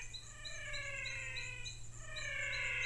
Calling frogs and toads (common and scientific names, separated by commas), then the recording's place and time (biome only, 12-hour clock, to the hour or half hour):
menwig frog (Physalaemus albonotatus)
Cerrado, 6pm